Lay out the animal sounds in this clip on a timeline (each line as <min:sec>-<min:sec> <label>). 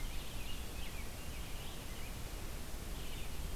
0:00.0-0:03.6 American Robin (Turdus migratorius)
0:00.0-0:03.6 Red-eyed Vireo (Vireo olivaceus)